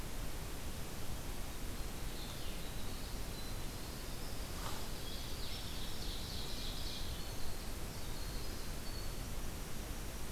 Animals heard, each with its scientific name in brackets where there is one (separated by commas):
Blue-headed Vireo (Vireo solitarius), Winter Wren (Troglodytes hiemalis), Ovenbird (Seiurus aurocapilla)